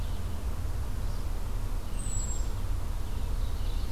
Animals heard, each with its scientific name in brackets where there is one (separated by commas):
Ovenbird (Seiurus aurocapilla), Red-eyed Vireo (Vireo olivaceus), Hermit Thrush (Catharus guttatus)